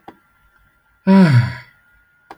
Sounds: Sigh